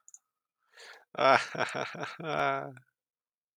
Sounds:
Laughter